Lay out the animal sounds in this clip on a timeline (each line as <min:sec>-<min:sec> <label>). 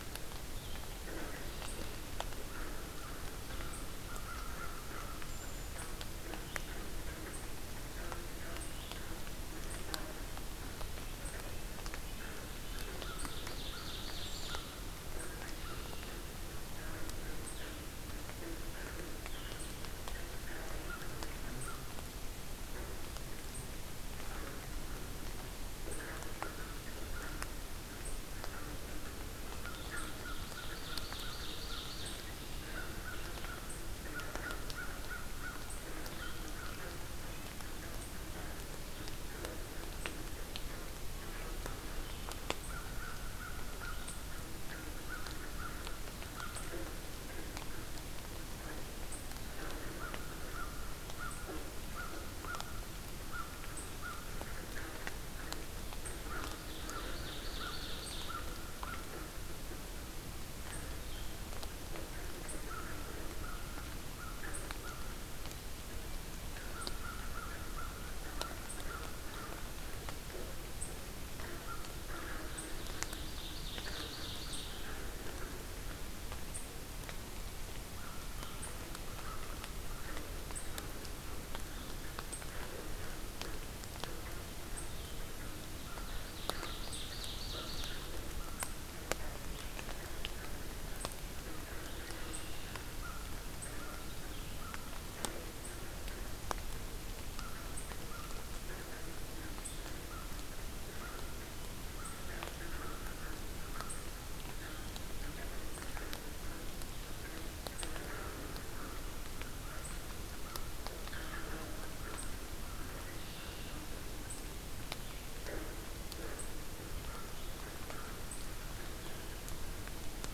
0:00.0-0:09.0 Blue-headed Vireo (Vireo solitarius)
0:01.1-0:05.4 American Crow (Corvus brachyrhynchos)
0:01.2-0:02.1 Red-winged Blackbird (Agelaius phoeniceus)
0:10.8-0:13.0 Red-breasted Nuthatch (Sitta canadensis)
0:12.6-0:14.6 Ovenbird (Seiurus aurocapilla)
0:15.3-0:16.3 Red-winged Blackbird (Agelaius phoeniceus)
0:17.5-0:19.8 Blue-headed Vireo (Vireo solitarius)
0:20.8-0:21.9 American Crow (Corvus brachyrhynchos)
0:25.9-0:27.5 American Crow (Corvus brachyrhynchos)
0:29.5-0:31.9 American Crow (Corvus brachyrhynchos)
0:29.9-0:32.3 Ovenbird (Seiurus aurocapilla)
0:32.1-0:33.0 Red-winged Blackbird (Agelaius phoeniceus)
0:32.6-0:37.0 American Crow (Corvus brachyrhynchos)
0:37.1-0:37.6 Red-breasted Nuthatch (Sitta canadensis)
0:38.9-0:46.7 Blue-headed Vireo (Vireo solitarius)
0:42.6-0:46.8 American Crow (Corvus brachyrhynchos)
0:49.5-0:59.9 American Crow (Corvus brachyrhynchos)
0:56.6-0:58.4 Ovenbird (Seiurus aurocapilla)
1:00.9-1:01.4 Blue-headed Vireo (Vireo solitarius)
1:02.6-1:05.2 American Crow (Corvus brachyrhynchos)
1:06.6-1:09.6 American Crow (Corvus brachyrhynchos)
1:11.5-1:15.5 American Crow (Corvus brachyrhynchos)
1:12.6-1:14.8 Ovenbird (Seiurus aurocapilla)
1:17.9-1:20.2 American Crow (Corvus brachyrhynchos)
1:25.2-1:28.7 American Crow (Corvus brachyrhynchos)
1:26.0-1:28.1 Ovenbird (Seiurus aurocapilla)
1:31.8-1:32.9 Red-winged Blackbird (Agelaius phoeniceus)
1:32.9-1:34.9 American Crow (Corvus brachyrhynchos)
1:37.3-1:53.8 American Crow (Corvus brachyrhynchos)
1:52.9-1:53.8 Red-winged Blackbird (Agelaius phoeniceus)
1:55.3-1:58.2 American Crow (Corvus brachyrhynchos)